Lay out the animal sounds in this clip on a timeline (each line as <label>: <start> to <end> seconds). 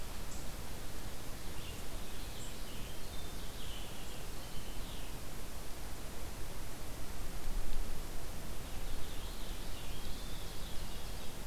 Purple Finch (Haemorhous purpureus): 1.4 to 5.1 seconds
Purple Finch (Haemorhous purpureus): 8.4 to 11.2 seconds
Ovenbird (Seiurus aurocapilla): 9.5 to 11.5 seconds